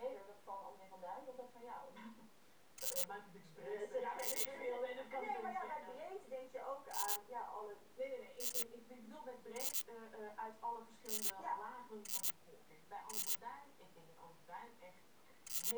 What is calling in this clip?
Incertana incerta, an orthopteran